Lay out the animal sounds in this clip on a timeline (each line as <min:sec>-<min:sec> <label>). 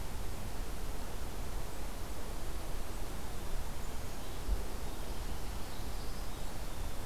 0:05.3-0:07.1 American Goldfinch (Spinus tristis)